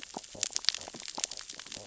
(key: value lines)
label: biophony, stridulation
recorder: SoundTrap 600 or HydroMoth

label: biophony, sea urchins (Echinidae)
recorder: SoundTrap 600 or HydroMoth